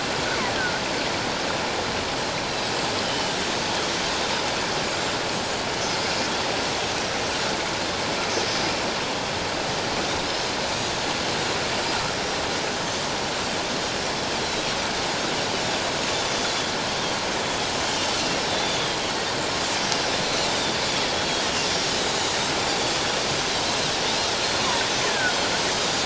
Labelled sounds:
3.1	3.4	Pacific white-sided dolphin, 2.9 to 3.2 kHz
4.9	5.2	Pacific white-sided dolphin, 7.1 to 7.5 kHz
5.9	6.3	Pacific white-sided dolphin, 4.8 to 6.7 kHz
8.4	8.7	Pacific white-sided dolphin, 5.0 to 5.4 kHz
12.1	12.4	Pacific white-sided dolphin, 5.5 to 5.8 kHz
14.4	14.7	Pacific white-sided dolphin, 3.8 to 4.2 kHz
16.3	16.7	Pacific white-sided dolphin, 3.2 to 3.5 kHz
17.4	17.7	Pacific white-sided dolphin, 3.3 to 3.5 kHz
18.5	19.0	Pacific white-sided dolphin, 3.2 to 8.0 kHz
20.5	21.4	Pacific white-sided dolphin, 3.2 to 3.8 kHz
21.7	23.0	Pacific white-sided dolphin, 4.4 to 6.8 kHz
25.1	25.4	killer whale, offshore, call OFF17, 1.3 to 1.9 kHz

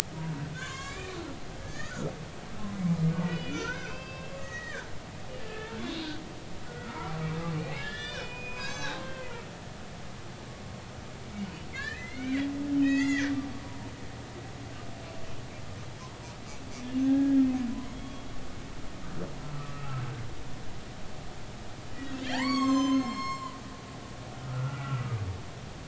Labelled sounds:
0.5	2.1	humpback whale, 0.99 to 7.4 kHz
3.3	4.9	humpback whale, 1.0 to 7.1 kHz
5.4	6.2	humpback whale, 1.2 to 3.9 kHz
6.7	9.4	humpback whale, 0.80 to 6.9 kHz
11.7	12.5	humpback whale, 1.5 to 2.6 kHz
12.8	13.9	humpback whale, 0.90 to 3.6 kHz
17.0	17.4	humpback whale, 1.6 to 1.7 kHz
17.9	18.3	humpback whale, 3.3 to 3.4 kHz
19.4	20.0	humpback whale, 1.1 to 1.4 kHz
22.2	23.6	humpback whale, 0.80 to 7.9 kHz
24.4	25.2	humpback whale, 1.1 to 1.5 kHz

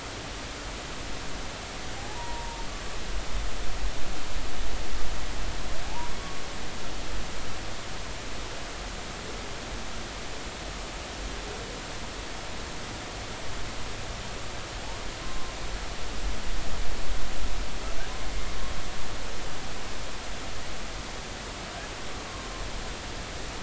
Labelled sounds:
2.0	2.6	humpback whale, 0.80 to 1.0 kHz
5.8	6.1	humpback whale, 0.80 to 1.0 kHz
15.2	15.5	humpback whale, 1.0 to 1.1 kHz

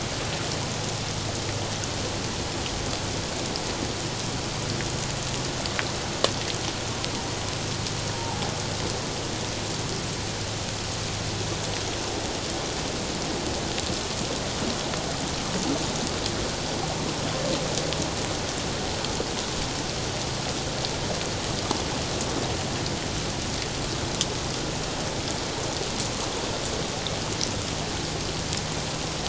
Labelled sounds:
8.1	8.4	humpback whale, 0.78 to 0.97 kHz

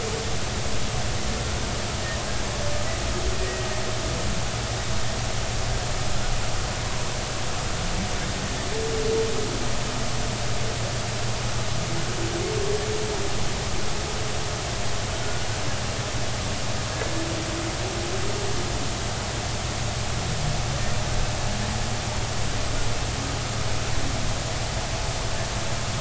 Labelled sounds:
3.3	3.7	humpback whale, 1.8 to 2.0 kHz
15.2	15.5	humpback whale, 1.4 to 1.5 kHz

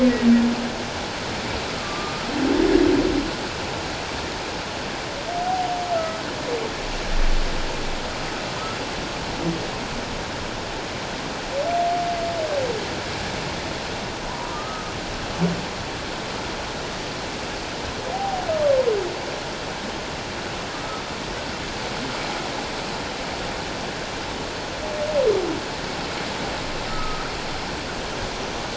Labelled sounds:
1.7	2.2	humpback whale, 1.1 to 1.3 kHz
5.9	6.2	humpback whale, 1.2 to 1.4 kHz
14.3	14.9	humpback whale, 0.88 to 1.3 kHz
18.1	18.4	humpback whale, 0.78 to 0.84 kHz
20.7	21.0	humpback whale, 1.2 to 1.3 kHz
26.9	27.3	humpback whale, 1.2 to 1.4 kHz

